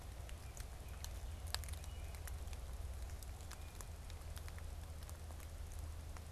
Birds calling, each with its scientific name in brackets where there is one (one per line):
American Robin (Turdus migratorius)